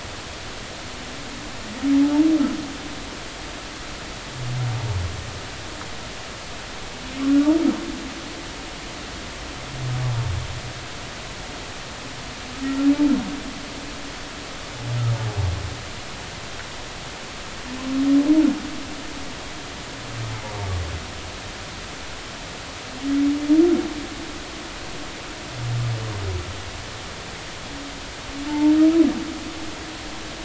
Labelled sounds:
28.5	28.7	humpback whale, 0.83 to 0.96 kHz

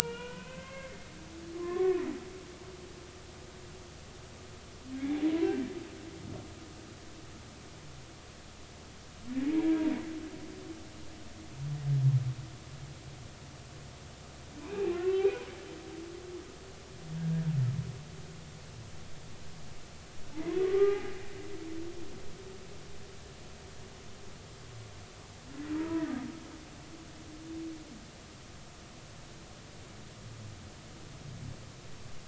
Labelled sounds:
0.0	2.0	humpback whale, 0.99 to 3.3 kHz
5.0	5.2	humpback whale, 2.0 to 2.4 kHz
14.6	15.5	humpback whale, 0.99 to 2.7 kHz
20.7	21.1	humpback whale, 0.80 to 2.0 kHz
25.8	26.1	humpback whale, 0.90 to 1.3 kHz

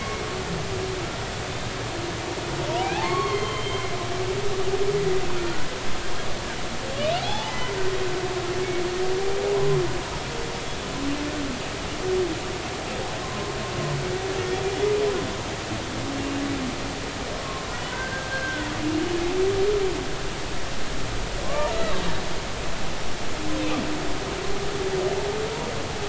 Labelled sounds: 2.8	3.8	humpback whale, 0.80 to 4.4 kHz
7.2	7.8	humpback whale, 0.80 to 2.1 kHz
13.2	13.6	humpback whale, 0.99 to 1.1 kHz
17.9	18.7	humpback whale, 1.4 to 1.7 kHz
21.4	22.0	humpback whale, 0.99 to 4.1 kHz

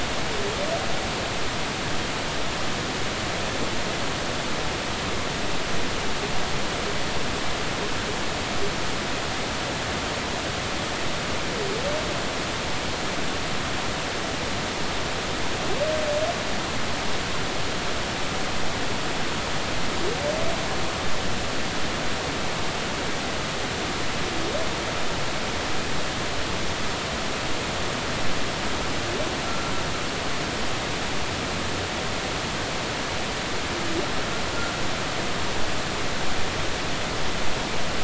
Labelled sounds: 29.5	29.7	humpback whale, 1.3 to 1.4 kHz

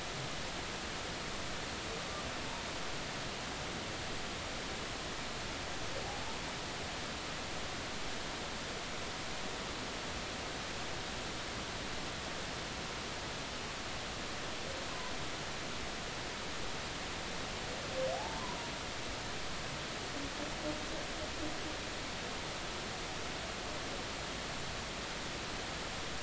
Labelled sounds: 18.1	18.6	humpback whale, 0.80 to 1.1 kHz

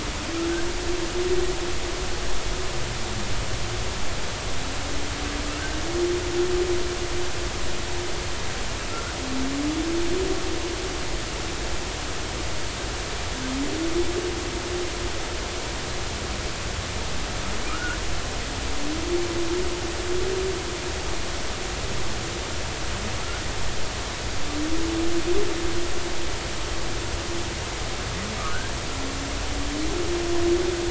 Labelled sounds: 17.7	18.0	humpback whale, 1.2 to 1.6 kHz
28.5	28.7	humpback whale, 1.4 to 1.7 kHz

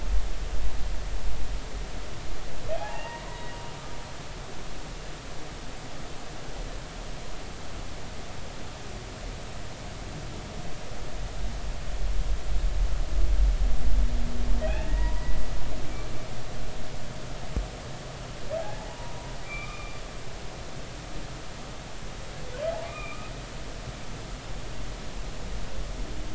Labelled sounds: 2.8	3.5	humpback whale, 0.80 to 2.0 kHz
14.6	15.2	humpback whale, 0.80 to 2.8 kHz
18.6	19.2	humpback whale, 0.80 to 0.99 kHz
19.4	20.0	humpback whale, 1.1 to 3.7 kHz
22.8	23.3	humpback whale, 1.1 to 3.7 kHz

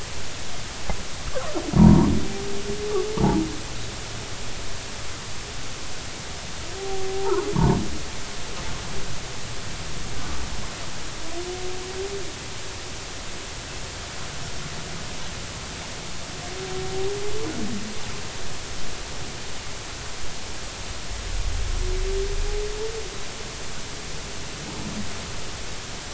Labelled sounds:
1.8	2.1	humpback whale, 0.90 to 1.2 kHz
3.2	3.4	humpback whale, 0.80 to 1.2 kHz
6.8	7.5	humpback whale, 0.80 to 1.5 kHz
8.5	8.8	humpback whale, 0.83 to 1.2 kHz

